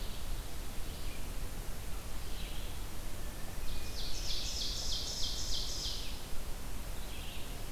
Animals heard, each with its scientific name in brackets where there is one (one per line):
Hermit Thrush (Catharus guttatus)
Red-eyed Vireo (Vireo olivaceus)
Ovenbird (Seiurus aurocapilla)